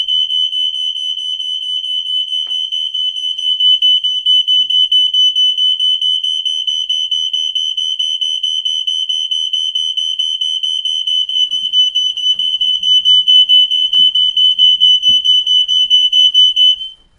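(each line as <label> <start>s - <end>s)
An alarm is going off. 0.0s - 17.1s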